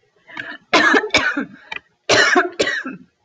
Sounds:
Cough